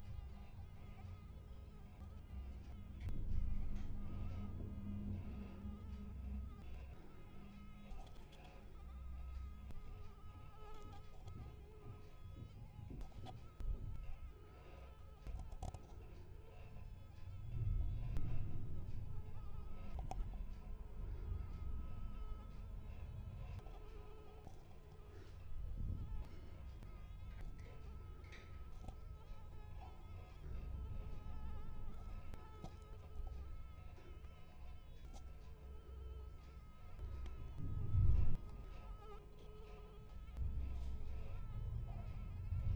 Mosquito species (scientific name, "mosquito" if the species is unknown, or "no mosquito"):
Anopheles coluzzii